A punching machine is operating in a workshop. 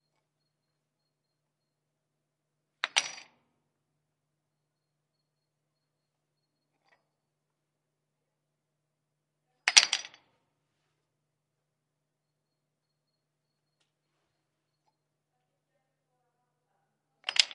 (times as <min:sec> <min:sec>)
0:02.4 0:03.5, 0:09.4 0:10.5, 0:16.9 0:17.5